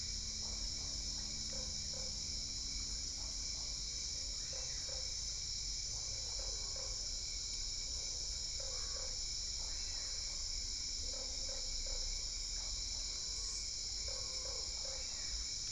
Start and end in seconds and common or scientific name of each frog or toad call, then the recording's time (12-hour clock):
0.4	7.0	Usina tree frog
7.9	15.5	Usina tree frog
7:30pm